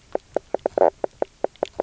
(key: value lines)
label: biophony, knock croak
recorder: SoundTrap 300